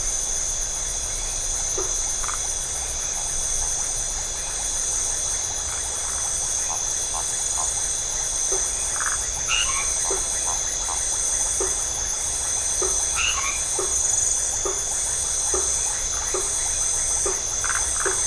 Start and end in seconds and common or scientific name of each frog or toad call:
5.9	6.4	Phyllomedusa distincta
8.3	18.2	blacksmith tree frog
8.8	9.3	Phyllomedusa distincta
9.4	9.9	white-edged tree frog
13.0	13.6	white-edged tree frog